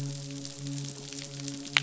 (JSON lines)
{"label": "biophony, midshipman", "recorder": "SoundTrap 500"}